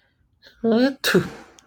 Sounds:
Sneeze